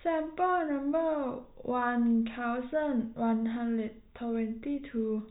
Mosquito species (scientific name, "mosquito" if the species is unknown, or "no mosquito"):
no mosquito